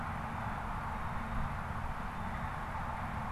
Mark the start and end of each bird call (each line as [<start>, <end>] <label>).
[0.00, 2.80] Blue Jay (Cyanocitta cristata)